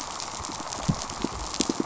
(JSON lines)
{"label": "biophony, pulse", "recorder": "SoundTrap 500"}